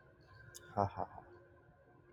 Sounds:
Laughter